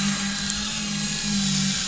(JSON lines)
{"label": "anthrophony, boat engine", "recorder": "SoundTrap 500"}